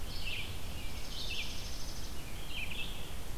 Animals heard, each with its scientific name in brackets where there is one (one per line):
Dark-eyed Junco (Junco hyemalis)
Red-eyed Vireo (Vireo olivaceus)